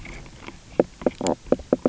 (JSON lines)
{"label": "biophony, knock croak", "recorder": "SoundTrap 300"}